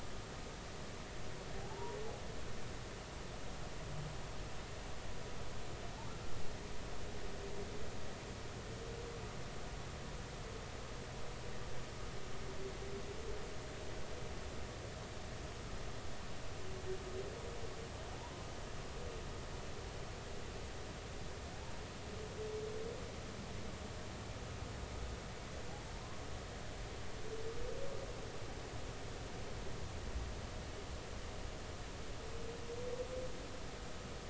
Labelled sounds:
1.6	2.0	humpback whale, 0.80 to 1.0 kHz

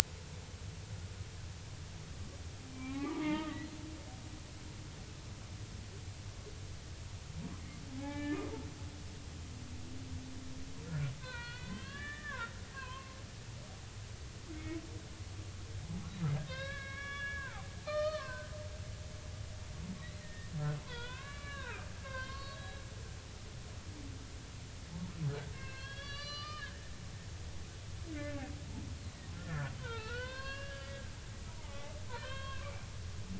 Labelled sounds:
2.7	3.7	humpback whale, 0.80 to 2.6 kHz
8.0	9.5	humpback whale, 0.80 to 3.0 kHz
10.9	13.2	humpback whale, 0.90 to 4.6 kHz
14.5	14.8	humpback whale, 2.1 to 2.3 kHz
16.5	18.5	humpback whale, 0.80 to 4.5 kHz
20.2	20.5	humpback whale, 1.8 to 2.0 kHz
20.8	22.8	humpback whale, 0.86 to 4.8 kHz
25.5	26.8	humpback whale, 1.1 to 6.0 kHz
29.3	32.9	humpback whale, 0.83 to 5.1 kHz

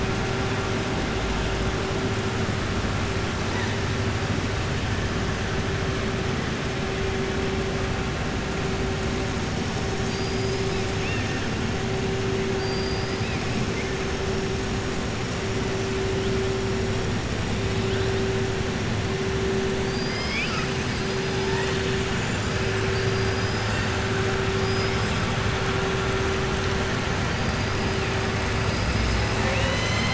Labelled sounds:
9.9	11.4	killer whale, southern resident, 1.6 to 6.9 kHz
12.5	13.4	killer whale, southern resident, 4.6 to 5.0 kHz
19.8	20.7	killer whale, southern resident, 1.3 to 5.6 kHz
22.8	23.9	killer whale, southern resident, 1.8 to 5.7 kHz
24.5	25.2	killer whale, southern resident, 4.8 to 5.5 kHz
28.6	29.3	killer whale, southern resident, 4.2 to 6.0 kHz

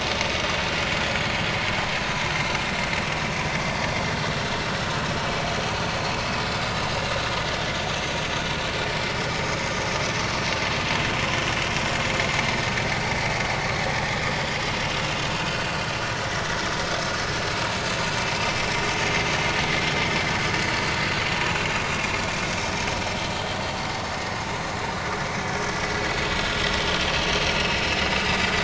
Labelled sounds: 4.6	5.5	vessel noise, 2.2 to 4.8 kHz
9.3	9.5	vessel noise, 5.0 to 5.2 kHz
15.4	15.7	vessel noise, 1.3 to 1.6 kHz
20.7	20.9	vessel noise, 4.4 to 4.6 kHz
21.5	21.7	vessel noise, 2.7 to 2.8 kHz

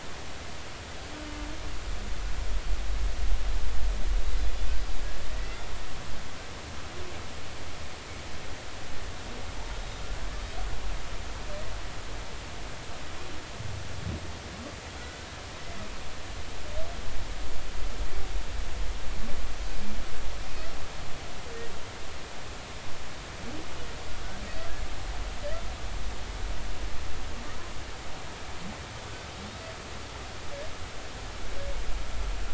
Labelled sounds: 5.4	5.6	humpback whale, 1.9 to 2.1 kHz

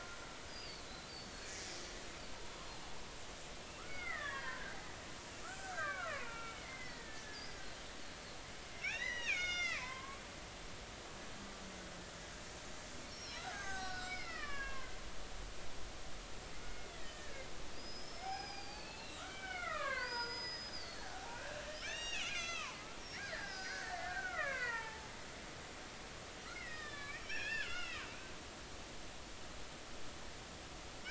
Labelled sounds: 0.5	1.5	killer whale, Bigg's (transient), 3.9 to 5.0 kHz
3.8	4.8	killer whale, Bigg's (transient), 0.90 to 3.6 kHz
5.4	7.6	killer whale, Bigg's (transient), 0.86 to 5.2 kHz
8.7	10.2	killer whale, Bigg's (transient), 0.93 to 7.3 kHz
13.2	14.9	killer whale, Bigg's (transient), 0.99 to 6.5 kHz
16.9	22.8	killer whale, Bigg's (transient), 0.80 to 6.7 kHz
23.1	25.1	killer whale, Bigg's (transient), 0.83 to 6.1 kHz
26.5	28.1	killer whale, Bigg's (transient), 1.1 to 5.7 kHz
30.9	31.0	killer whale, Bigg's (transient), 0.90 to 1.8 kHz

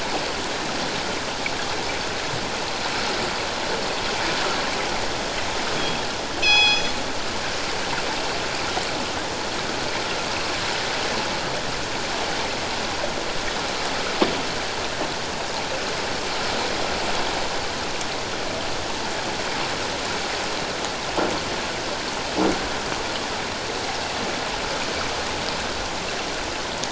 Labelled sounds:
5.7	6.9	killer whale, northern resident, G clan, call N24ii, 0.78 to 6.1 kHz

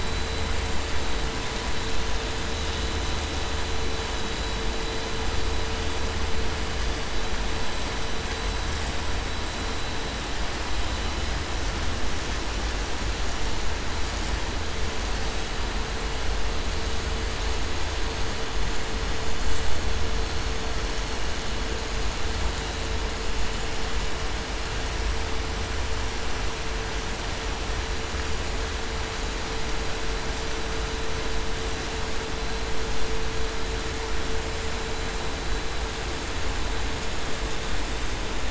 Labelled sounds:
0.0	0.4	vessel noise, 3.9 to 4.0 kHz

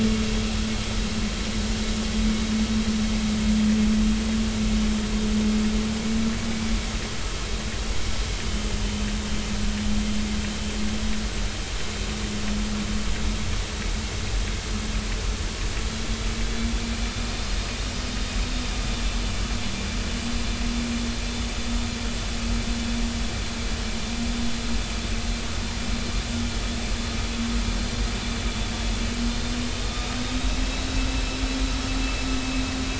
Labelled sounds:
30.0	30.2	vessel noise, 3.6 to 3.9 kHz

